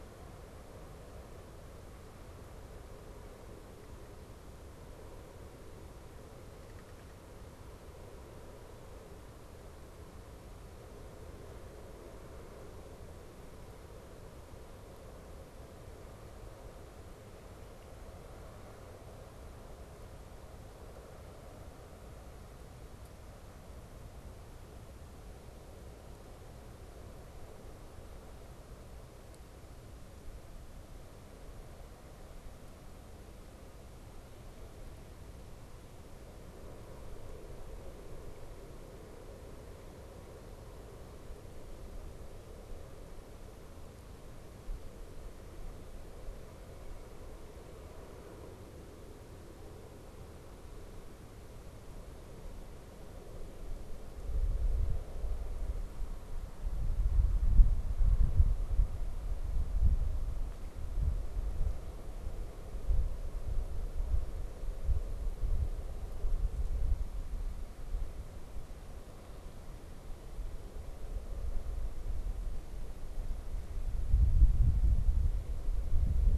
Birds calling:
unidentified bird

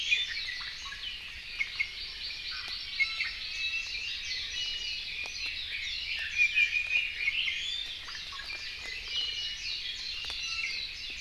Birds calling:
Warbling White-eye (Zosterops japonicus)
Red-billed Leiothrix (Leiothrix lutea)
Hawaii Amakihi (Chlorodrepanis virens)
Iiwi (Drepanis coccinea)

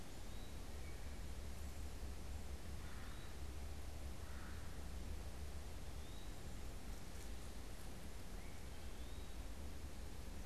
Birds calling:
Eastern Wood-Pewee (Contopus virens)
Red-bellied Woodpecker (Melanerpes carolinus)

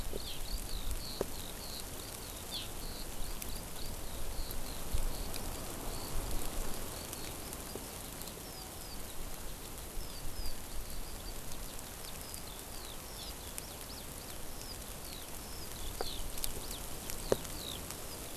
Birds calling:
Eurasian Skylark (Alauda arvensis)

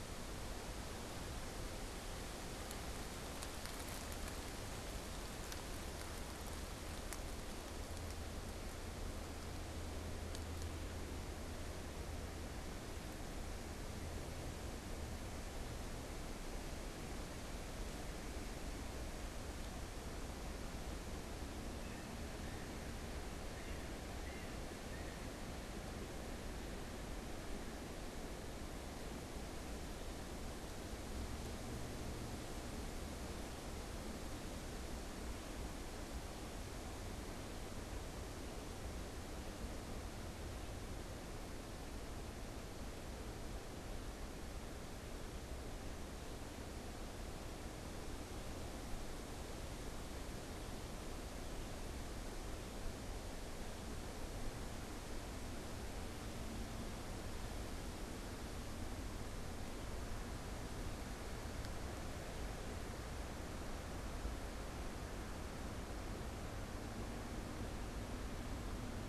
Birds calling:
Yellow-bellied Sapsucker (Sphyrapicus varius)

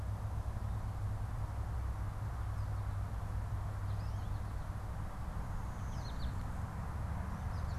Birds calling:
American Goldfinch (Spinus tristis)

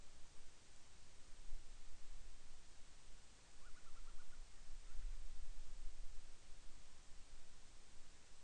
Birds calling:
Band-rumped Storm-Petrel (Hydrobates castro)

